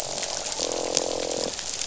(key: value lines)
label: biophony, croak
recorder: SoundTrap 500